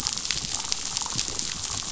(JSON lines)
{"label": "biophony", "recorder": "SoundTrap 500"}